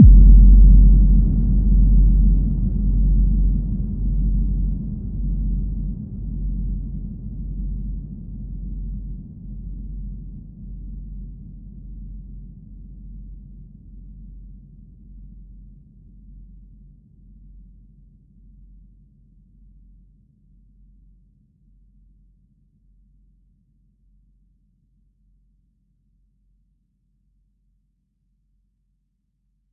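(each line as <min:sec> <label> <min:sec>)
0:00.0 Deep bass sound fading away. 0:10.8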